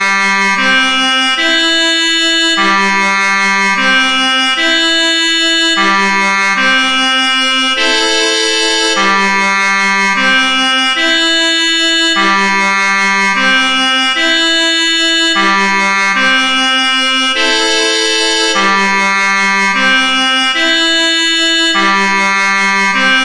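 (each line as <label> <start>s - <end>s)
Trumpet fanfare with a repeating three-tone pattern. 0.0s - 7.8s
A consistent tone is played on a harmonica. 7.7s - 9.0s
Trumpet fanfare with a repeating three-tone pattern. 9.0s - 17.4s
A consistent tone is played on a harmonica. 17.4s - 18.5s
Trumpet fanfare with a repeating three-tone pattern. 18.5s - 23.2s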